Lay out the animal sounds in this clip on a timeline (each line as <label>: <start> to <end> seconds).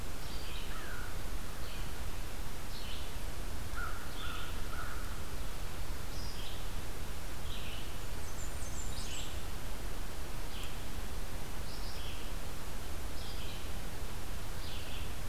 Red-eyed Vireo (Vireo olivaceus): 0.0 to 15.3 seconds
American Crow (Corvus brachyrhynchos): 0.7 to 1.2 seconds
American Crow (Corvus brachyrhynchos): 3.7 to 5.2 seconds
Blackburnian Warbler (Setophaga fusca): 7.8 to 9.3 seconds